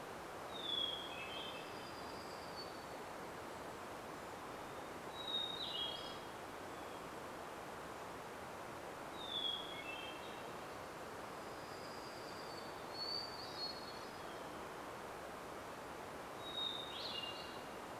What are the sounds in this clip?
Hermit Thrush song, warbler song, Golden-crowned Kinglet call